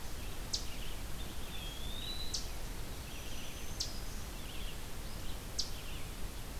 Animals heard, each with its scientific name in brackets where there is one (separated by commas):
Eastern Chipmunk (Tamias striatus), Red-eyed Vireo (Vireo olivaceus), Black-throated Green Warbler (Setophaga virens), Eastern Wood-Pewee (Contopus virens)